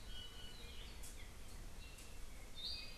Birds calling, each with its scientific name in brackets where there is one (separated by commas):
Iiwi (Drepanis coccinea)